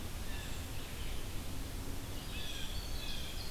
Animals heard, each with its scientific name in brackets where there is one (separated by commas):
Winter Wren (Troglodytes hiemalis), Blue Jay (Cyanocitta cristata), Red-eyed Vireo (Vireo olivaceus)